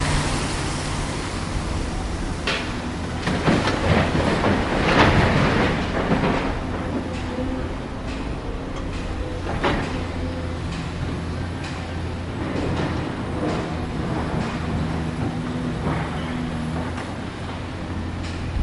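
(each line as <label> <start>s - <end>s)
People are constructing. 3.2s - 6.6s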